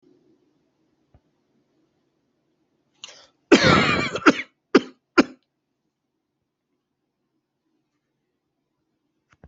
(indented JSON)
{
  "expert_labels": [
    {
      "quality": "ok",
      "cough_type": "wet",
      "dyspnea": false,
      "wheezing": false,
      "stridor": false,
      "choking": false,
      "congestion": false,
      "nothing": true,
      "diagnosis": "lower respiratory tract infection",
      "severity": "mild"
    }
  ],
  "age": 39,
  "gender": "male",
  "respiratory_condition": true,
  "fever_muscle_pain": false,
  "status": "symptomatic"
}